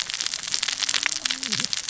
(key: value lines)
label: biophony, cascading saw
recorder: SoundTrap 600 or HydroMoth